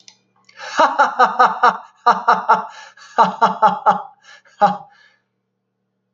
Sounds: Laughter